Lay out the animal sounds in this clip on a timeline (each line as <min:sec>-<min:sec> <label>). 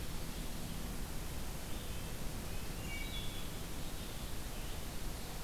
0:01.5-0:03.1 Red-breasted Nuthatch (Sitta canadensis)
0:02.7-0:03.7 Wood Thrush (Hylocichla mustelina)